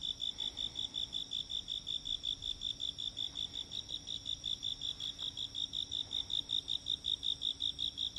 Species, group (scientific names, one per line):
Loxoblemmus arietulus
Orthoptera